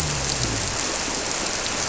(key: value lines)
label: biophony
recorder: SoundTrap 300